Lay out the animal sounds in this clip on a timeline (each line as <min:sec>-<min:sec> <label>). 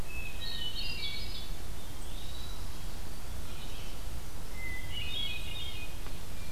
0:00.0-0:06.5 Red-eyed Vireo (Vireo olivaceus)
0:00.0-0:01.5 Hermit Thrush (Catharus guttatus)
0:01.8-0:02.7 Eastern Wood-Pewee (Contopus virens)
0:04.3-0:05.9 Hermit Thrush (Catharus guttatus)